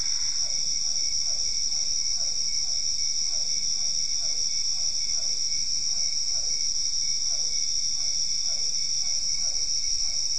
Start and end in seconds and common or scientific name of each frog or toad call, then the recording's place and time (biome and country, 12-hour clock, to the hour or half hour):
0.0	0.6	Boana albopunctata
0.0	10.3	Physalaemus cuvieri
Cerrado, Brazil, 9pm